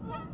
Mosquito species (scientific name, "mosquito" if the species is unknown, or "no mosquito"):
Aedes albopictus